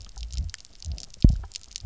{"label": "biophony, double pulse", "recorder": "SoundTrap 300"}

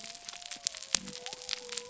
{"label": "biophony", "recorder": "SoundTrap 300"}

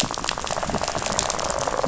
{"label": "biophony, rattle", "recorder": "SoundTrap 500"}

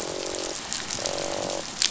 {"label": "biophony, croak", "recorder": "SoundTrap 500"}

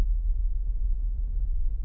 {"label": "anthrophony, boat engine", "recorder": "SoundTrap 300"}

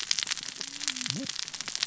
{"label": "biophony, cascading saw", "recorder": "SoundTrap 600 or HydroMoth"}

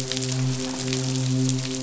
{"label": "biophony, midshipman", "recorder": "SoundTrap 500"}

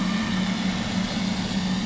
{"label": "anthrophony, boat engine", "recorder": "SoundTrap 500"}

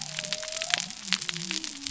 {"label": "biophony", "recorder": "SoundTrap 300"}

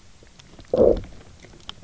{"label": "biophony, low growl", "recorder": "SoundTrap 300"}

